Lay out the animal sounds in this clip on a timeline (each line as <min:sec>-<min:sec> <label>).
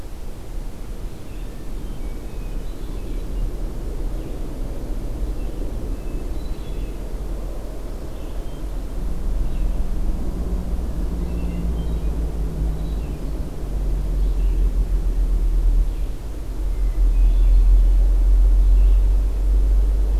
0:00.0-0:20.2 Red-eyed Vireo (Vireo olivaceus)
0:01.5-0:03.4 Hermit Thrush (Catharus guttatus)
0:05.5-0:07.3 Hermit Thrush (Catharus guttatus)
0:11.0-0:13.8 Hermit Thrush (Catharus guttatus)
0:16.5-0:17.9 Hermit Thrush (Catharus guttatus)